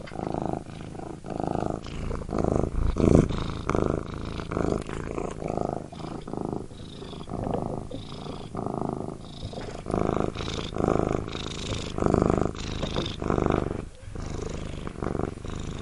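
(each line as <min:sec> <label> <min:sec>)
0:00.1 A cat is purring loudly and irregularly nearby. 0:15.8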